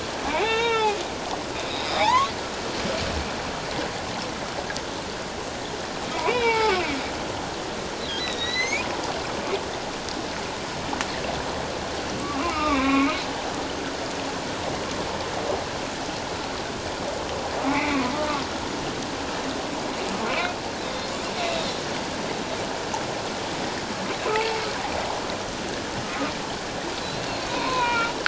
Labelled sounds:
0.3	2.3	humpback whale, 0.78 to 5.7 kHz
6.1	6.8	humpback whale, 0.81 to 3.0 kHz
8.2	8.9	humpback whale, 1.8 to 6.7 kHz
12.2	13.1	humpback whale, 0.97 to 2.8 kHz
17.7	18.0	humpback whale, 1.9 to 2.7 kHz
20.3	21.1	humpback whale, 2.2 to 3.8 kHz
24.2	24.6	humpback whale, 0.81 to 2.8 kHz
27.0	28.1	humpback whale, 0.91 to 4.3 kHz

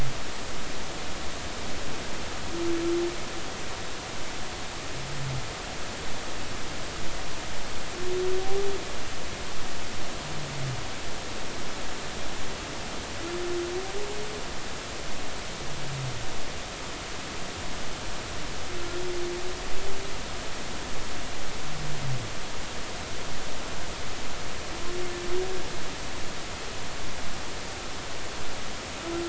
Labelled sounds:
8.4	8.7	humpback whale, 0.80 to 0.86 kHz

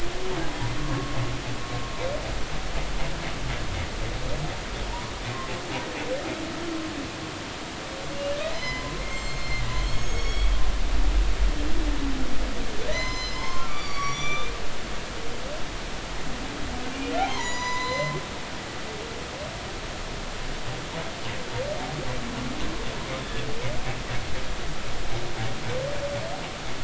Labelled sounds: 8.5	10.5	humpback whale, 0.96 to 6.7 kHz
12.9	14.6	humpback whale, 0.86 to 7.3 kHz
17.2	18.2	humpback whale, 0.86 to 7.2 kHz

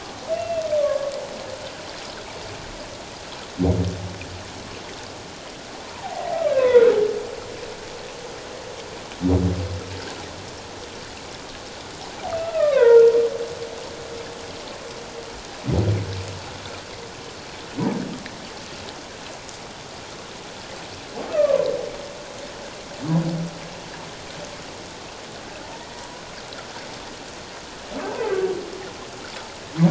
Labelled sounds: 5.8	6.9	humpback whale, 0.78 to 2.8 kHz
12.3	13.1	humpback whale, 0.88 to 2.8 kHz
21.3	21.7	humpback whale, 0.97 to 1.3 kHz
25.9	26.2	humpback whale, 0.91 to 1.1 kHz
28.0	28.3	humpback whale, 0.78 to 1.1 kHz

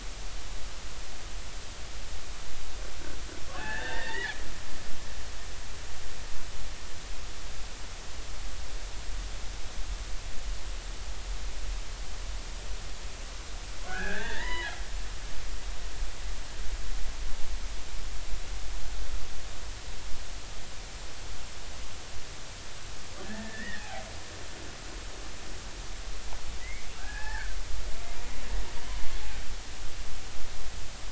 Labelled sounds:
3.5	4.4	killer whale, Bigg's (transient), 0.80 to 2.8 kHz
5.0	5.3	killer whale, Bigg's (transient), 2.6 to 3.0 kHz
13.9	14.8	killer whale, Bigg's (transient), 0.80 to 4.1 kHz
23.2	24.0	killer whale, Bigg's (transient), 0.80 to 2.0 kHz
26.6	27.6	killer whale, Bigg's (transient), 0.80 to 2.7 kHz

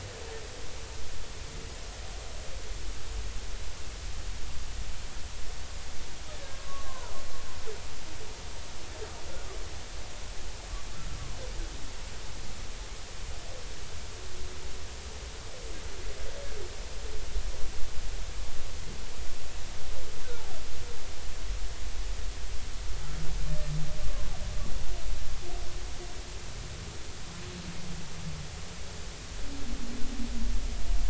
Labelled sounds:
6.3	7.1	humpback whale, 0.90 to 1.9 kHz
24.0	24.3	humpback whale, 0.99 to 1.2 kHz

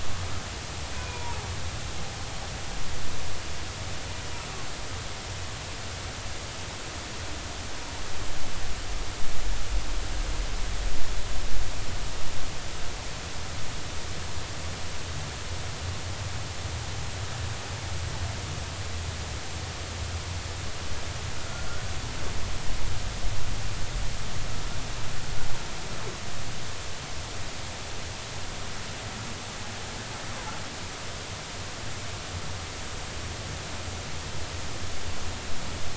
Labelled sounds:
0.9	1.4	humpback whale, 0.86 to 2.5 kHz

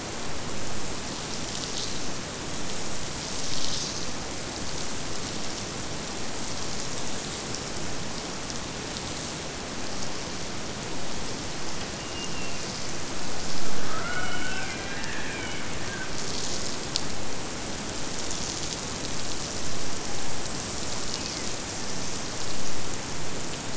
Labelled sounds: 12.0	13.0	killer whale, Bigg's (transient), Gulf of Alaska transient, 1.8 to 3.1 kHz

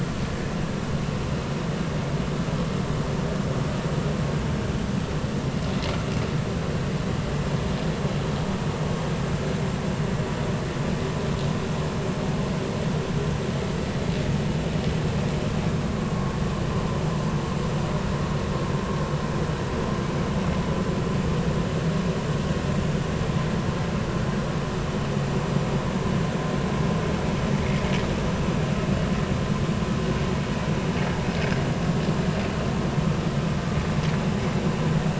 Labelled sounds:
16.0	16.3	vessel noise, 1.0 to 1.1 kHz

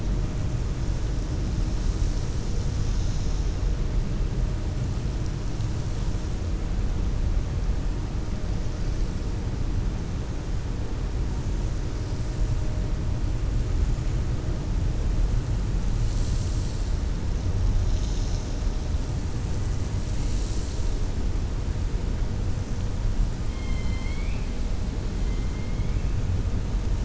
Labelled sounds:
23.4	24.5	killer whale, 2.0 to 4.3 kHz

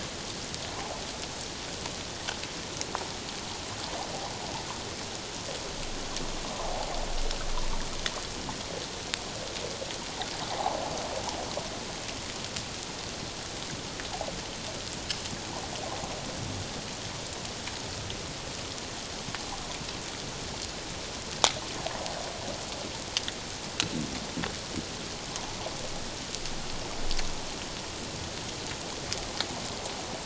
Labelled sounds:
10.5	10.8	water noise, 0.78 to 1.2 kHz

